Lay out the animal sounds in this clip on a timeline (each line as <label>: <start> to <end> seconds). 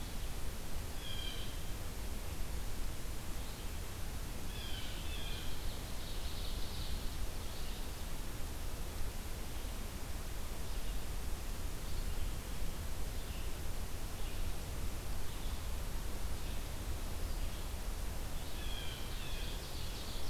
Red-eyed Vireo (Vireo olivaceus): 0.0 to 20.3 seconds
Blue Jay (Cyanocitta cristata): 0.7 to 5.5 seconds
Ovenbird (Seiurus aurocapilla): 5.4 to 7.3 seconds
Blue Jay (Cyanocitta cristata): 18.4 to 20.3 seconds
Ovenbird (Seiurus aurocapilla): 19.0 to 20.3 seconds